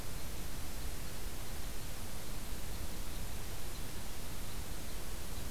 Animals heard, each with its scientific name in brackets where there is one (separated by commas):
Red Crossbill (Loxia curvirostra)